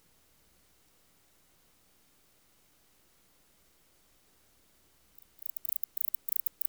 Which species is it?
Barbitistes yersini